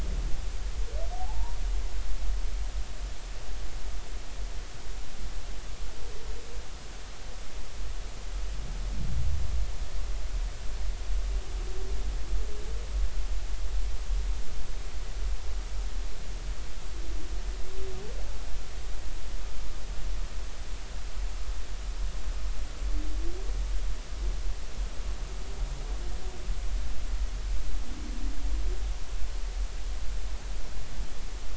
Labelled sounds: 1.1	1.6	humpback whale, 0.80 to 1.0 kHz

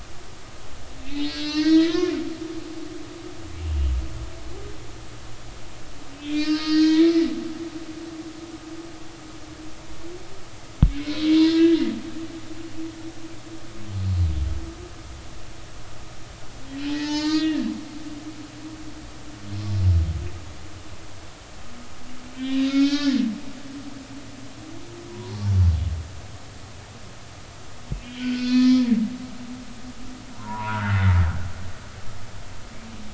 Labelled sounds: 1.1	2.2	humpback whale, 0.86 to 6.3 kHz
6.2	7.3	humpback whale, 1.2 to 6.2 kHz
7.5	7.9	humpback whale, 4.3 to 4.4 kHz
11.0	11.8	humpback whale, 1.6 to 4.1 kHz
14.0	14.3	humpback whale, 4.1 to 4.3 kHz
16.7	17.7	humpback whale, 0.83 to 6.8 kHz
22.4	23.2	humpback whale, 1.3 to 5.6 kHz
25.1	25.4	humpback whale, 0.80 to 1.1 kHz
28.0	28.9	humpback whale, 0.93 to 4.6 kHz
30.3	31.0	humpback whale, 0.83 to 1.7 kHz

